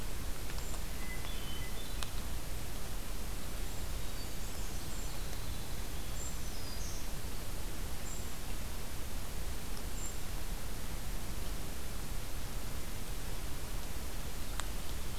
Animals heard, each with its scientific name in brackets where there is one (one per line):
Black-and-white Warbler (Mniotilta varia)
Golden-crowned Kinglet (Regulus satrapa)
Hermit Thrush (Catharus guttatus)
Winter Wren (Troglodytes hiemalis)
Black-throated Green Warbler (Setophaga virens)